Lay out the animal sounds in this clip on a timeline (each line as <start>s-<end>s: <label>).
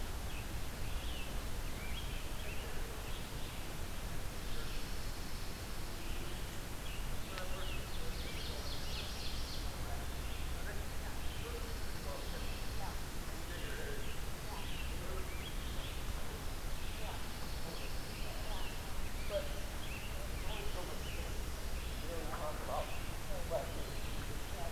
0.0s-7.8s: Red-eyed Vireo (Vireo olivaceus)
0.1s-2.8s: Scarlet Tanager (Piranga olivacea)
4.2s-6.2s: Pine Warbler (Setophaga pinus)
7.2s-9.8s: Ovenbird (Seiurus aurocapilla)
10.0s-24.7s: Red-eyed Vireo (Vireo olivaceus)
11.4s-13.0s: Pine Warbler (Setophaga pinus)
13.3s-16.1s: Scarlet Tanager (Piranga olivacea)
17.2s-19.0s: Pine Warbler (Setophaga pinus)
17.6s-21.4s: Scarlet Tanager (Piranga olivacea)